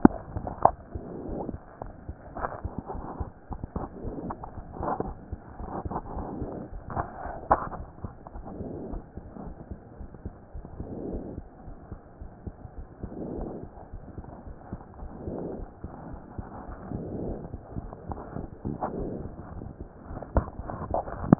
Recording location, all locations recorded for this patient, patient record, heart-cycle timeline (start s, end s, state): aortic valve (AV)
aortic valve (AV)+pulmonary valve (PV)+tricuspid valve (TV)+mitral valve (MV)
#Age: Child
#Sex: Male
#Height: 123.0 cm
#Weight: 23.9 kg
#Pregnancy status: False
#Murmur: Absent
#Murmur locations: nan
#Most audible location: nan
#Systolic murmur timing: nan
#Systolic murmur shape: nan
#Systolic murmur grading: nan
#Systolic murmur pitch: nan
#Systolic murmur quality: nan
#Diastolic murmur timing: nan
#Diastolic murmur shape: nan
#Diastolic murmur grading: nan
#Diastolic murmur pitch: nan
#Diastolic murmur quality: nan
#Outcome: Abnormal
#Campaign: 2015 screening campaign
0.00	8.92	unannotated
8.92	9.02	S1
9.02	9.14	systole
9.14	9.24	S2
9.24	9.45	diastole
9.45	9.54	S1
9.54	9.69	systole
9.69	9.80	S2
9.80	9.99	diastole
9.99	10.08	S1
10.08	10.24	systole
10.24	10.34	S2
10.34	10.53	diastole
10.53	10.64	S1
10.64	10.78	systole
10.78	10.88	S2
10.88	11.08	diastole
11.08	11.24	S1
11.24	11.35	systole
11.35	11.44	S2
11.44	11.65	diastole
11.65	11.74	S1
11.74	11.90	systole
11.90	11.98	S2
11.98	12.19	diastole
12.19	12.30	S1
12.30	12.44	systole
12.44	12.54	S2
12.54	12.75	diastole
12.75	12.88	S1
12.88	13.01	systole
13.01	13.12	S2
13.12	13.38	diastole
13.38	13.52	S1
13.52	13.60	systole
13.60	13.68	S2
13.68	13.92	diastole
13.92	14.00	S1
14.00	14.15	systole
14.15	14.26	S2
14.26	14.45	diastole
14.45	14.54	S1
14.54	14.70	systole
14.70	14.80	S2
14.80	14.99	diastole
14.99	15.10	S1
15.10	15.26	systole
15.26	15.35	S2
15.35	15.58	diastole
15.58	15.68	S1
15.68	15.82	systole
15.82	15.90	S2
15.90	16.10	diastole
16.10	16.20	S1
16.20	16.36	systole
16.36	16.44	S2
16.44	16.66	diastole
16.66	16.77	S1
16.77	16.93	systole
16.93	17.00	S2
17.00	17.28	S2
17.28	21.39	unannotated